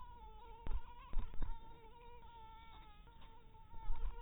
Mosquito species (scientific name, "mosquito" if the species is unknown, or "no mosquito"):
mosquito